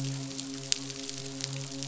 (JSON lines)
{"label": "biophony, midshipman", "recorder": "SoundTrap 500"}